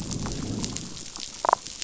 {"label": "biophony, damselfish", "recorder": "SoundTrap 500"}
{"label": "biophony, growl", "recorder": "SoundTrap 500"}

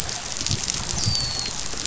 {"label": "biophony, dolphin", "recorder": "SoundTrap 500"}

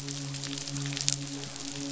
{"label": "biophony, midshipman", "recorder": "SoundTrap 500"}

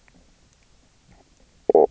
{"label": "biophony, knock croak", "recorder": "SoundTrap 300"}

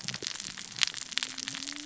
{"label": "biophony, cascading saw", "recorder": "SoundTrap 600 or HydroMoth"}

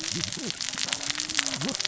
{"label": "biophony, cascading saw", "recorder": "SoundTrap 600 or HydroMoth"}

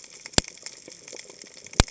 {"label": "biophony, cascading saw", "recorder": "HydroMoth"}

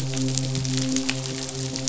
{"label": "biophony, midshipman", "recorder": "SoundTrap 500"}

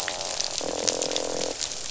{"label": "biophony, croak", "recorder": "SoundTrap 500"}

